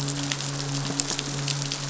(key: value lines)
label: biophony, midshipman
recorder: SoundTrap 500